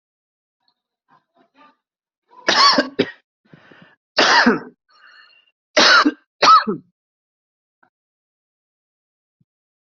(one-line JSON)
{"expert_labels": [{"quality": "ok", "cough_type": "dry", "dyspnea": true, "wheezing": false, "stridor": false, "choking": false, "congestion": false, "nothing": false, "diagnosis": "COVID-19", "severity": "mild"}], "age": 42, "gender": "male", "respiratory_condition": true, "fever_muscle_pain": false, "status": "COVID-19"}